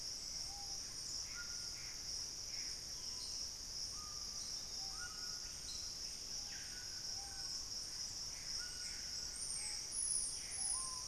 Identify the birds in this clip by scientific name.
Lipaugus vociferans, Ramphastos tucanus, Cercomacra cinerascens, unidentified bird, Trogon collaris